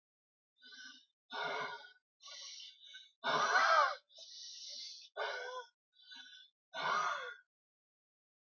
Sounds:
Sigh